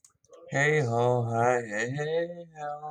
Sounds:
Sigh